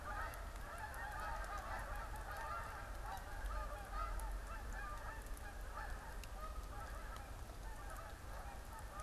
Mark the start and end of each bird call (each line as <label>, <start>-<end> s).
Canada Goose (Branta canadensis), 0.0-9.0 s